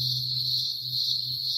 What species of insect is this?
Cyclochila australasiae